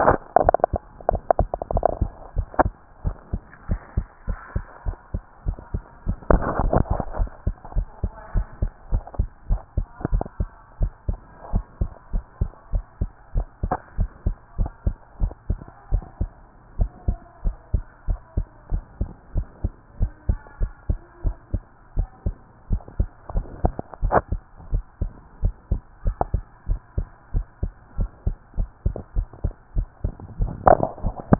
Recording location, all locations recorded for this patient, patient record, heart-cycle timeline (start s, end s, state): tricuspid valve (TV)
aortic valve (AV)+pulmonary valve (PV)+tricuspid valve (TV)+mitral valve (MV)
#Age: Child
#Sex: Male
#Height: 141.0 cm
#Weight: 35.7 kg
#Pregnancy status: False
#Murmur: Absent
#Murmur locations: nan
#Most audible location: nan
#Systolic murmur timing: nan
#Systolic murmur shape: nan
#Systolic murmur grading: nan
#Systolic murmur pitch: nan
#Systolic murmur quality: nan
#Diastolic murmur timing: nan
#Diastolic murmur shape: nan
#Diastolic murmur grading: nan
#Diastolic murmur pitch: nan
#Diastolic murmur quality: nan
#Outcome: Abnormal
#Campaign: 2015 screening campaign
0.00	7.74	unannotated
7.74	7.88	S1
7.88	8.00	systole
8.00	8.12	S2
8.12	8.34	diastole
8.34	8.48	S1
8.48	8.60	systole
8.60	8.70	S2
8.70	8.90	diastole
8.90	9.04	S1
9.04	9.16	systole
9.16	9.30	S2
9.30	9.48	diastole
9.48	9.62	S1
9.62	9.76	systole
9.76	9.88	S2
9.88	10.12	diastole
10.12	10.26	S1
10.26	10.38	systole
10.38	10.52	S2
10.52	10.80	diastole
10.80	10.94	S1
10.94	11.06	systole
11.06	11.20	S2
11.20	11.50	diastole
11.50	11.64	S1
11.64	11.78	systole
11.78	11.90	S2
11.90	12.12	diastole
12.12	12.24	S1
12.24	12.40	systole
12.40	12.50	S2
12.50	12.72	diastole
12.72	12.86	S1
12.86	13.00	systole
13.00	13.10	S2
13.10	13.34	diastole
13.34	13.48	S1
13.48	13.64	systole
13.64	13.78	S2
13.78	13.98	diastole
13.98	14.08	S1
14.08	14.24	systole
14.24	14.38	S2
14.38	14.58	diastole
14.58	14.72	S1
14.72	14.84	systole
14.84	14.98	S2
14.98	15.20	diastole
15.20	15.34	S1
15.34	15.48	systole
15.48	15.62	S2
15.62	15.89	diastole
15.89	16.02	S1
16.02	16.18	systole
16.18	16.30	S2
16.30	16.74	diastole
16.74	16.90	S1
16.90	17.04	systole
17.04	17.20	S2
17.20	17.44	diastole
17.44	17.58	S1
17.58	17.70	systole
17.70	17.86	S2
17.86	18.08	diastole
18.08	18.20	S1
18.20	18.36	systole
18.36	18.46	S2
18.46	18.70	diastole
18.70	18.84	S1
18.84	18.98	systole
18.98	19.10	S2
19.10	19.34	diastole
19.34	19.48	S1
19.48	19.62	systole
19.62	19.72	S2
19.72	19.96	diastole
19.96	20.10	S1
20.10	20.24	systole
20.24	20.40	S2
20.40	20.60	diastole
20.60	20.72	S1
20.72	20.88	systole
20.88	21.02	S2
21.02	21.24	diastole
21.24	21.38	S1
21.38	21.52	systole
21.52	21.64	S2
21.64	21.94	diastole
21.94	22.08	S1
22.08	22.24	systole
22.24	22.40	S2
22.40	22.70	diastole
22.70	22.82	S1
22.82	22.98	systole
22.98	23.12	S2
23.12	23.34	diastole
23.34	23.46	S1
23.46	31.39	unannotated